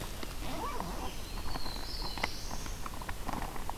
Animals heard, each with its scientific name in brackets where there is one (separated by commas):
Black-throated Blue Warbler (Setophaga caerulescens)